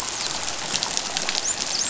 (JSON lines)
{"label": "biophony, dolphin", "recorder": "SoundTrap 500"}